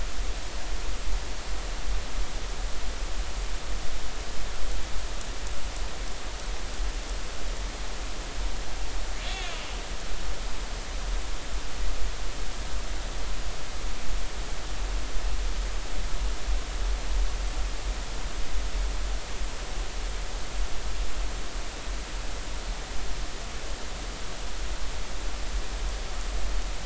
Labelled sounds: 9.2	9.5	killer whale, northern resident, 3.2 to 3.5 kHz

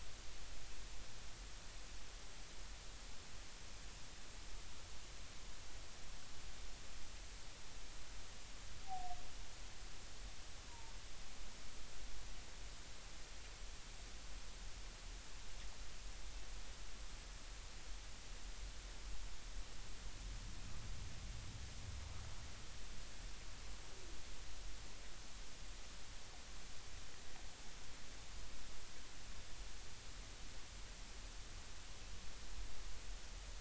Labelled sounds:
10.7	10.9	humpback whale, 0.86 to 1.0 kHz

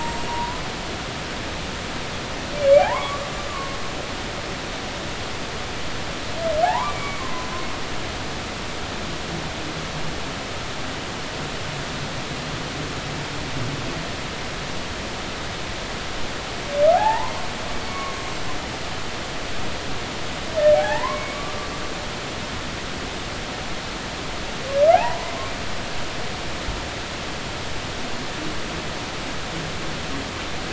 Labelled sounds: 0.0	0.3	humpback whale, 7.4 to 7.6 kHz
2.7	3.8	humpback whale, 0.80 to 2.5 kHz
6.6	7.5	humpback whale, 0.80 to 2.4 kHz
16.9	18.5	humpback whale, 0.80 to 7.6 kHz
20.7	21.6	humpback whale, 0.80 to 2.4 kHz
24.9	25.3	humpback whale, 0.80 to 1.1 kHz

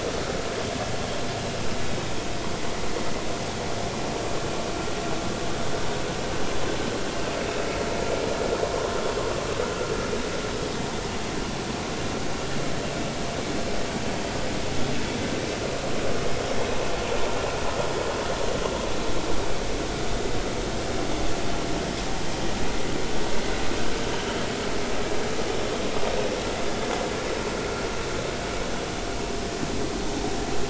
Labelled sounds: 7.4	7.7	vessel noise, 2.5 to 2.7 kHz

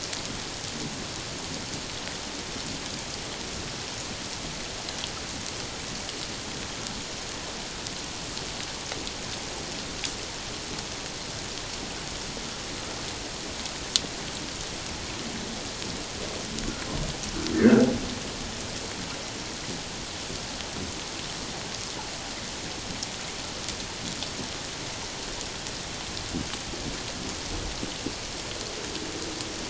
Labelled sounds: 17.5	17.9	humpback whale, 1.3 to 1.9 kHz

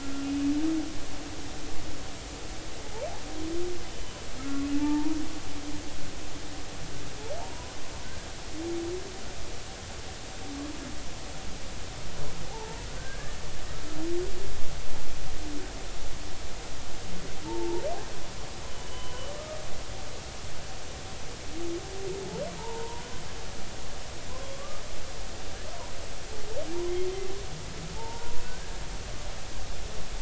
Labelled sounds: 0.0	0.5	humpback whale, 1.3 to 2.8 kHz
4.4	5.2	humpback whale, 0.83 to 1.4 kHz
7.4	7.8	humpback whale, 0.86 to 1.1 kHz
12.5	13.4	humpback whale, 0.80 to 1.8 kHz
17.5	17.8	humpback whale, 0.80 to 0.99 kHz
18.9	19.2	humpback whale, 0.96 to 3.1 kHz
22.6	23.0	humpback whale, 0.83 to 1.1 kHz
25.5	25.8	humpback whale, 1.1 to 1.3 kHz
28.0	28.4	humpback whale, 0.83 to 1.0 kHz

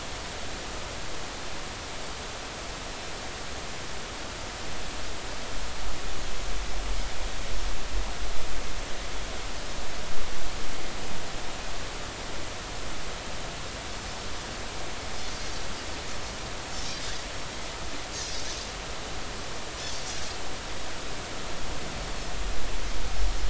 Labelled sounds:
18.2	18.4	Pacific white-sided dolphin, 5.0 to 5.2 kHz

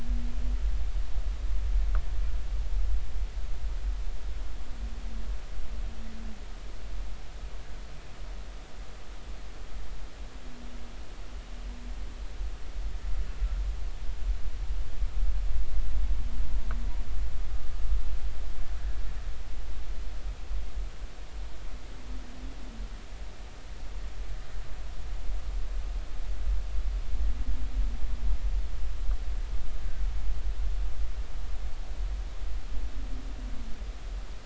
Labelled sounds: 18.8	19.0	humpback whale, 1.6 to 1.7 kHz

